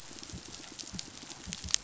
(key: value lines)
label: biophony, pulse
recorder: SoundTrap 500